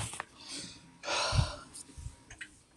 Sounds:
Sigh